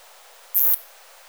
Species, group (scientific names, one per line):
Isophya tosevski
Orthoptera